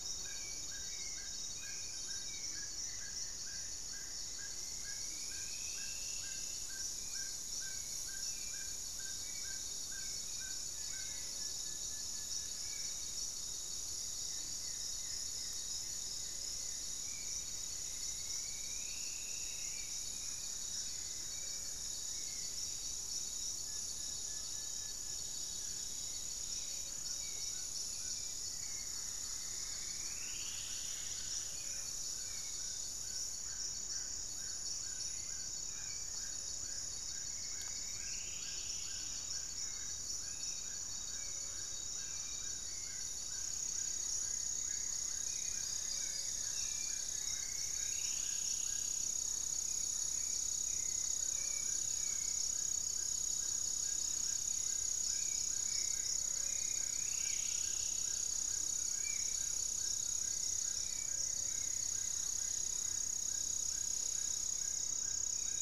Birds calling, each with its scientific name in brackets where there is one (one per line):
Goeldi's Antbird (Akletos goeldii)
Horned Screamer (Anhima cornuta)
Striped Woodcreeper (Xiphorhynchus obsoletus)
Spot-winged Antshrike (Pygiptila stellaris)
Buff-breasted Wren (Cantorchilus leucotis)
Amazonian Trogon (Trogon ramonianus)
Plain-winged Antshrike (Thamnophilus schistaceus)
Gray-fronted Dove (Leptotila rufaxilla)
Screaming Piha (Lipaugus vociferans)
Hauxwell's Thrush (Turdus hauxwelli)
unidentified bird
Black-faced Antthrush (Formicarius analis)